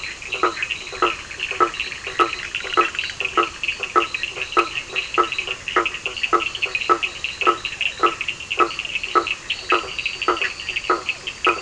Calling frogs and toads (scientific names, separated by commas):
Boana leptolineata, Boana faber, Sphaenorhynchus surdus, Elachistocleis bicolor